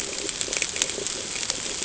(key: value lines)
label: ambient
recorder: HydroMoth